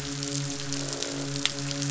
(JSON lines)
{"label": "biophony, midshipman", "recorder": "SoundTrap 500"}
{"label": "biophony, croak", "recorder": "SoundTrap 500"}